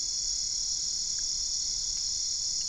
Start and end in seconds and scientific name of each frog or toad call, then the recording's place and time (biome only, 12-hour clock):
none
Cerrado, 11:30pm